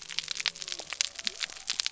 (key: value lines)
label: biophony
recorder: SoundTrap 300